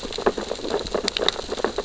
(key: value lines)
label: biophony, sea urchins (Echinidae)
recorder: SoundTrap 600 or HydroMoth